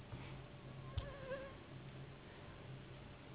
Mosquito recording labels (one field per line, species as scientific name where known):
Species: Anopheles gambiae s.s.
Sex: female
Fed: unfed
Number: one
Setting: insect culture